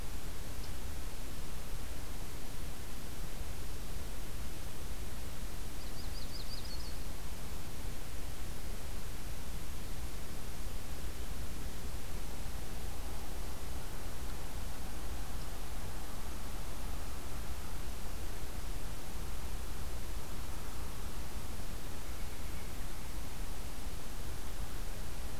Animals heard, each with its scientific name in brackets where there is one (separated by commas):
Yellow-rumped Warbler (Setophaga coronata), Pileated Woodpecker (Dryocopus pileatus)